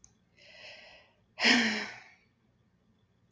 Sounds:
Sigh